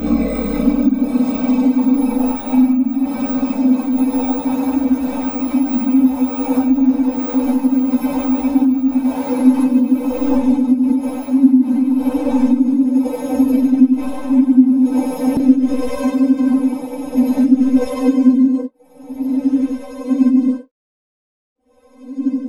Is there someone singing?
no